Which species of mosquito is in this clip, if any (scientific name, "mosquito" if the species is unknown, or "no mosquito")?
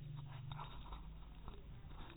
no mosquito